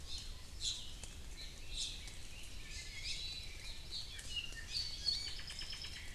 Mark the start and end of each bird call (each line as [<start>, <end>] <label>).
[0.00, 1.00] Iiwi (Drepanis coccinea)
[1.60, 2.10] Iiwi (Drepanis coccinea)
[2.90, 3.30] Iiwi (Drepanis coccinea)
[4.10, 6.10] Apapane (Himatione sanguinea)
[4.50, 5.40] Iiwi (Drepanis coccinea)